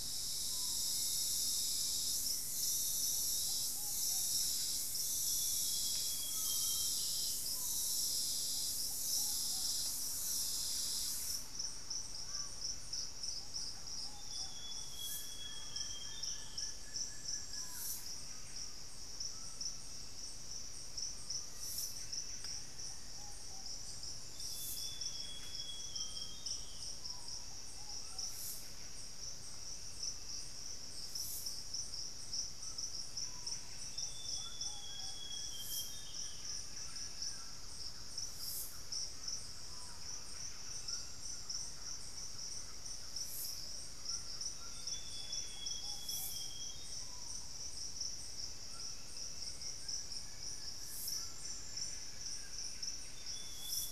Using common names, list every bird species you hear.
Screaming Piha, Hauxwell's Thrush, Ruddy Pigeon, Buff-breasted Wren, Amazonian Grosbeak, White-throated Toucan, Thrush-like Wren, Plain-winged Antshrike, Black-faced Antthrush, unidentified bird